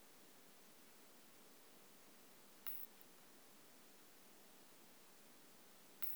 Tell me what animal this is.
Isophya modestior, an orthopteran